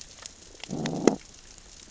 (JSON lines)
{"label": "biophony, growl", "recorder": "SoundTrap 600 or HydroMoth"}